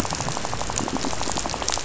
{"label": "biophony, rattle", "recorder": "SoundTrap 500"}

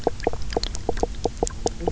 {"label": "biophony, knock croak", "recorder": "SoundTrap 300"}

